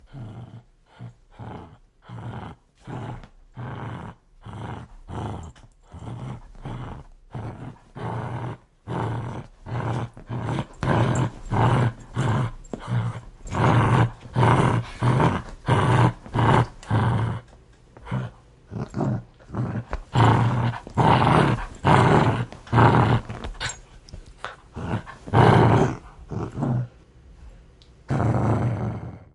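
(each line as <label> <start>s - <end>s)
A dog growls repeatedly. 0.0s - 10.7s
A dog growls repeatedly, growing louder. 10.8s - 17.5s
A dog growls repeatedly. 18.0s - 29.3s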